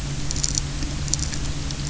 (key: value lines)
label: anthrophony, boat engine
recorder: SoundTrap 300